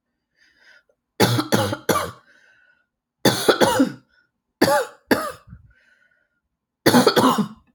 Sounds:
Cough